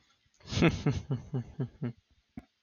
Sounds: Laughter